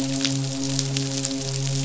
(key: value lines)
label: biophony, midshipman
recorder: SoundTrap 500